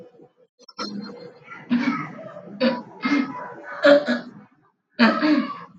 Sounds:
Laughter